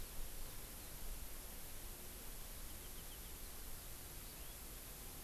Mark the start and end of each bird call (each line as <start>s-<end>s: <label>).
4.1s-4.6s: Hawaii Amakihi (Chlorodrepanis virens)